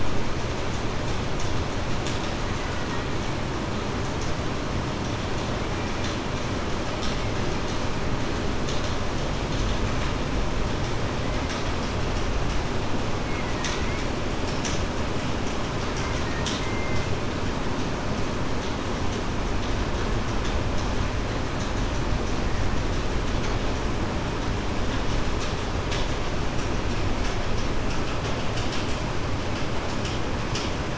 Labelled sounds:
16.6	17.1	killer whale, Bigg's (transient), 2.0 to 2.1 kHz

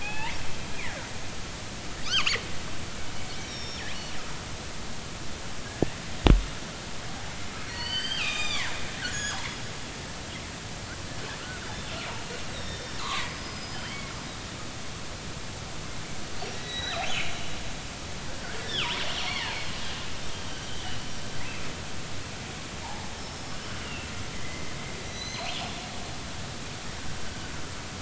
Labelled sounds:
0.0	1.1	killer whale, northern resident, G clan, GI subclan, call N24i, 0.80 to 3.0 kHz
2.0	2.3	killer whale, northern resident, G clan, 0.99 to 3.4 kHz
3.4	3.8	killer whale, northern resident, G clan, call N23i, 3.2 to 5.8 kHz
7.6	8.7	killer whale, northern resident, G clan, 0.90 to 7.4 kHz
9.0	9.5	killer whale, northern resident, G clan, 1.3 to 7.1 kHz
12.5	14.1	killer whale, northern resident, G clan, 0.93 to 5.8 kHz
16.5	17.0	killer whale, northern resident, G clan, 1.4 to 4.0 kHz
17.3	17.6	killer whale, northern resident, G clan, 2.8 to 3.0 kHz
18.6	19.5	killer whale, northern resident, G clan, 0.90 to 4.6 kHz
22.8	23.5	killer whale, northern resident, G clan, 0.80 to 5.4 kHz
23.8	24.7	killer whale, northern resident, G clan, 1.9 to 2.9 kHz
25.0	25.6	killer whale, northern resident, G clan, 2.0 to 6.3 kHz

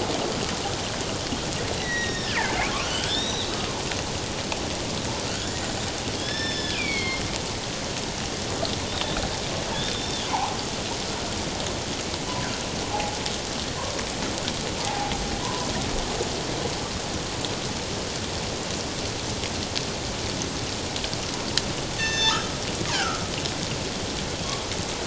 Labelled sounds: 1.7	3.6	killer whale, northern resident, G clan, 1.4 to 7.9 kHz
5.4	7.2	killer whale, northern resident, G clan, 1.6 to 7.3 kHz
9.7	10.5	killer whale, northern resident, G clan, 0.78 to 3.7 kHz
12.9	13.2	killer whale, northern resident, G clan, 0.78 to 0.91 kHz
14.8	15.1	killer whale, northern resident, G clan, 0.78 to 0.94 kHz
15.4	15.7	killer whale, northern resident, G clan, 0.91 to 1.1 kHz
22.0	22.6	killer whale, northern resident, G clan, 1.2 to 7.2 kHz
22.9	23.2	killer whale, northern resident, G clan, 1.2 to 1.7 kHz

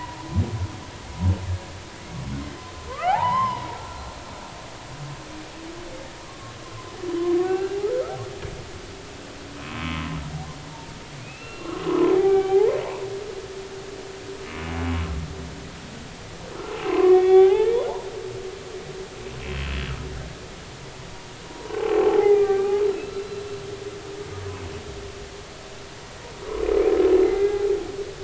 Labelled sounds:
2.9	4.1	humpback whale, 0.80 to 5.3 kHz
6.2	6.5	humpback whale, 1.1 to 1.2 kHz
7.4	8.2	humpback whale, 1.2 to 2.9 kHz
9.6	10.2	humpback whale, 0.96 to 2.3 kHz
11.2	12.7	humpback whale, 0.80 to 4.2 kHz
16.7	17.8	humpback whale, 0.80 to 3.6 kHz
21.5	23.2	humpback whale, 0.80 to 4.1 kHz
27.2	27.6	humpback whale, 1.6 to 2.1 kHz

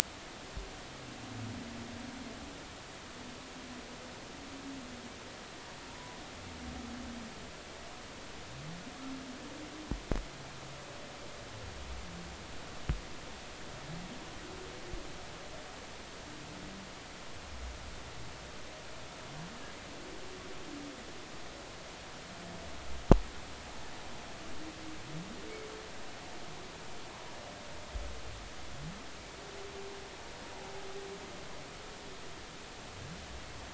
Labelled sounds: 5.9	6.2	humpback whale, 0.90 to 1.0 kHz

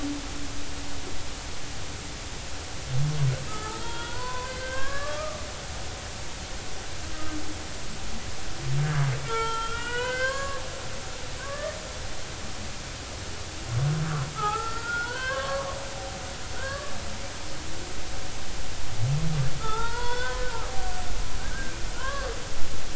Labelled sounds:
3.5	5.9	humpback whale, 0.90 to 3.6 kHz
9.3	11.8	humpback whale, 0.86 to 4.8 kHz
14.3	15.8	humpback whale, 0.80 to 4.5 kHz
16.5	17.0	humpback whale, 1.0 to 1.8 kHz
19.6	20.7	humpback whale, 0.83 to 4.4 kHz
21.4	22.3	humpback whale, 0.93 to 1.7 kHz

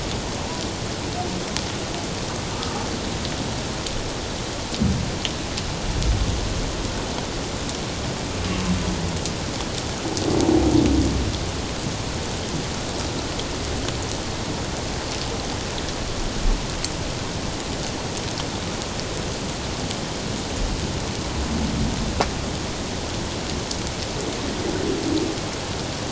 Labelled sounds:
2.5	2.8	humpback whale, 1.2 to 1.3 kHz

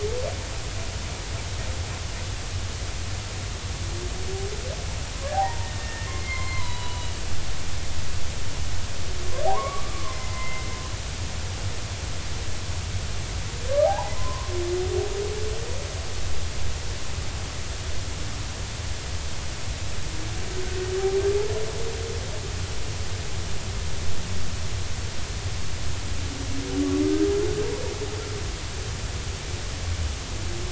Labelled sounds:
5.3	7.2	humpback whale, 0.80 to 3.0 kHz
9.5	10.7	humpback whale, 0.80 to 2.1 kHz
13.8	14.5	humpback whale, 0.80 to 1.1 kHz

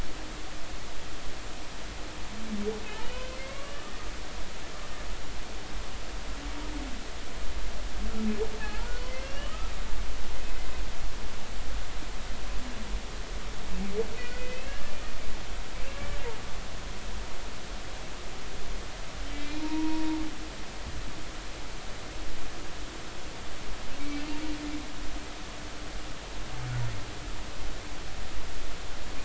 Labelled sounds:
3.0	3.8	humpback whale, 1.0 to 3.1 kHz
8.6	9.7	humpback whale, 0.80 to 3.0 kHz
14.2	14.8	humpback whale, 1.9 to 2.9 kHz
19.3	20.2	humpback whale, 0.86 to 2.5 kHz
24.1	24.4	humpback whale, 2.6 to 2.8 kHz

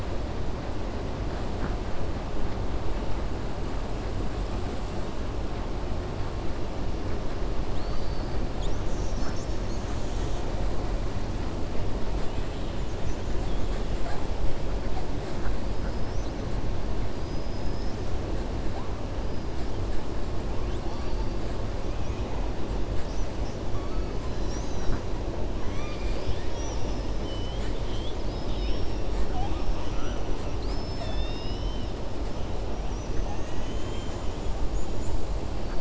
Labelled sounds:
7.6	8.3	killer whale, 3.2 to 5.1 kHz
17.1	18.0	killer whale, 4.8 to 6.4 kHz
21.9	22.4	killer whale, 1.1 to 3.4 kHz
25.6	27.1	killer whale, 1.2 to 6.0 kHz
33.1	34.1	killer whale, 0.83 to 3.2 kHz

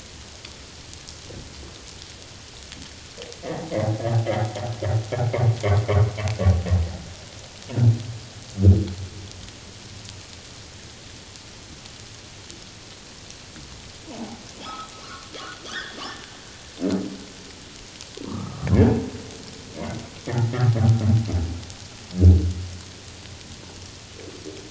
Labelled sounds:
14.1	16.0	humpback whale, 0.78 to 3.8 kHz
18.3	18.6	humpback whale, 0.91 to 1.3 kHz
20.3	20.5	humpback whale, 1.7 to 2.0 kHz

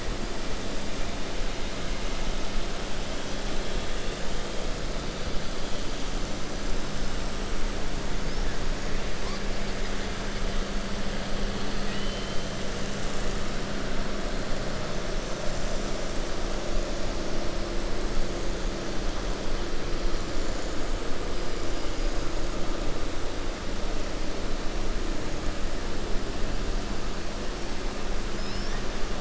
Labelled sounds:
11.8	12.4	killer whale, 1.9 to 4.1 kHz

